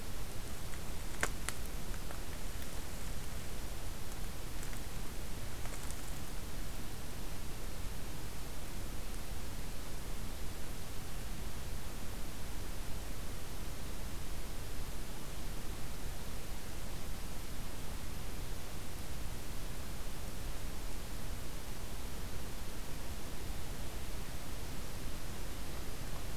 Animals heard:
forest ambience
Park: Hubbard Brook Experimental Forest